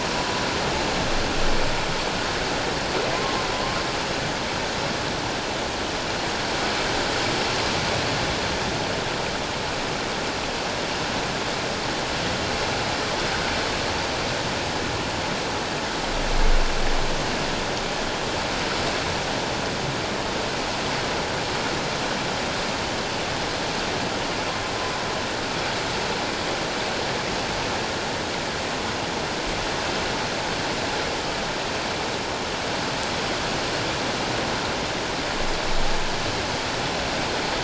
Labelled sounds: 3.1	3.4	humpback whale, 1.0 to 1.1 kHz

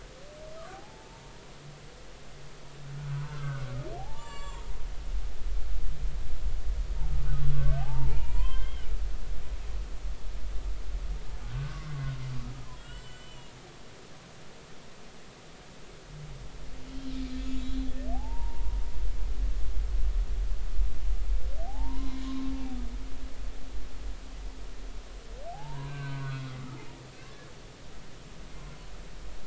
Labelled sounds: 0.7	1.3	humpback whale, 0.80 to 0.96 kHz
3.2	4.7	humpback whale, 0.80 to 7.7 kHz
7.5	8.9	humpback whale, 0.80 to 3.3 kHz
11.4	13.5	humpback whale, 1.0 to 7.6 kHz
17.3	18.8	humpback whale, 0.80 to 4.0 kHz
21.6	22.5	humpback whale, 0.80 to 4.1 kHz
25.5	26.5	humpback whale, 0.80 to 2.5 kHz
27.1	27.5	humpback whale, 1.5 to 1.8 kHz

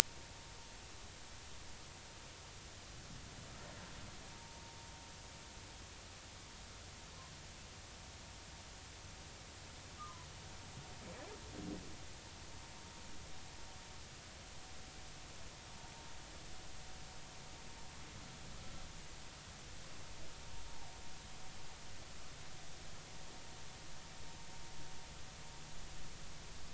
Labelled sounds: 10.0	10.3	humpback whale, 0.96 to 1.3 kHz

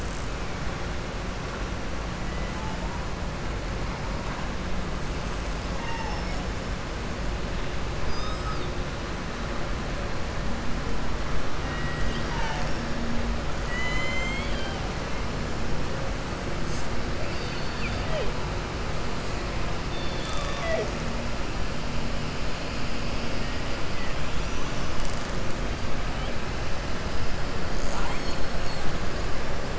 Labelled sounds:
5.7	6.5	killer whale, southern resident, 0.82 to 8.0 kHz
8.0	8.7	killer whale, southern resident, 3.6 to 7.7 kHz
11.6	12.9	killer whale, southern resident, 0.72 to 6.5 kHz
13.6	14.8	killer whale, southern resident, 1.0 to 7.8 kHz

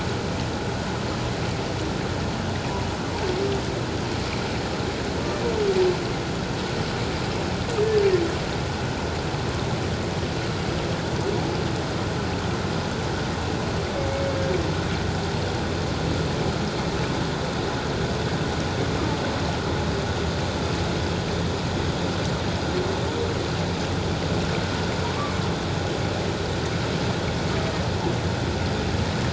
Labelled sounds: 14.1	14.4	humpback whale, 2.1 to 2.3 kHz

